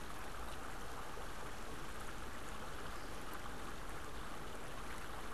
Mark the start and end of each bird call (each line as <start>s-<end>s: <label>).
2.7s-3.3s: American Woodcock (Scolopax minor)